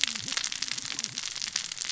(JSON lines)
{"label": "biophony, cascading saw", "recorder": "SoundTrap 600 or HydroMoth"}